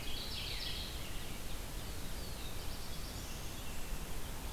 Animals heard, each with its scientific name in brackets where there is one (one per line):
Black-throated Blue Warbler (Setophaga caerulescens)
American Robin (Turdus migratorius)
Mourning Warbler (Geothlypis philadelphia)